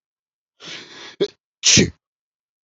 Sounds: Sneeze